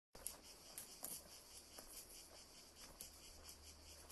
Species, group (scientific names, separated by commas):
Cicada orni, Cicadidae